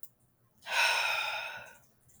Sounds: Sigh